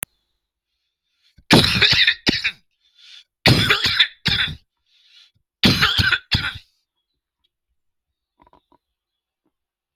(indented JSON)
{
  "expert_labels": [
    {
      "quality": "good",
      "cough_type": "dry",
      "dyspnea": false,
      "wheezing": false,
      "stridor": false,
      "choking": false,
      "congestion": false,
      "nothing": true,
      "diagnosis": "lower respiratory tract infection",
      "severity": "severe"
    }
  ],
  "age": 51,
  "gender": "male",
  "respiratory_condition": false,
  "fever_muscle_pain": false,
  "status": "healthy"
}